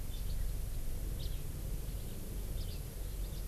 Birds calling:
House Finch (Haemorhous mexicanus)

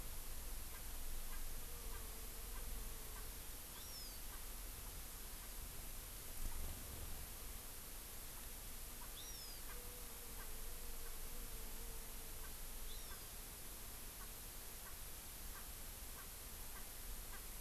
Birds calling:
Hawaii Amakihi (Chlorodrepanis virens), Erckel's Francolin (Pternistis erckelii)

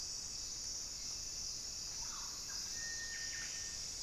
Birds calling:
Buff-breasted Wren (Cantorchilus leucotis), Cinereous Tinamou (Crypturellus cinereus), Thrush-like Wren (Campylorhynchus turdinus)

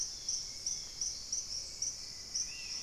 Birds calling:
unidentified bird, Hauxwell's Thrush (Turdus hauxwelli), Long-winged Antwren (Myrmotherula longipennis), Spot-winged Antshrike (Pygiptila stellaris)

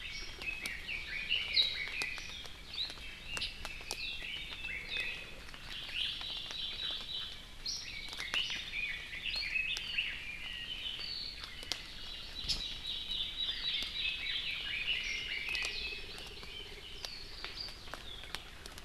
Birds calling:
Warbling White-eye (Zosterops japonicus), Hawaii Amakihi (Chlorodrepanis virens), Red-billed Leiothrix (Leiothrix lutea), Hawaii Creeper (Loxops mana)

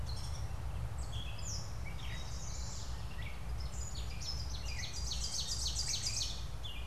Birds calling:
Chestnut-sided Warbler (Setophaga pensylvanica), Ovenbird (Seiurus aurocapilla), Gray Catbird (Dumetella carolinensis), Eastern Towhee (Pipilo erythrophthalmus)

